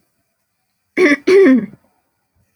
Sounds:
Throat clearing